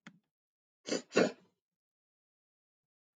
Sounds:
Sniff